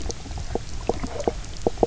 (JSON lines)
{"label": "biophony, knock croak", "recorder": "SoundTrap 300"}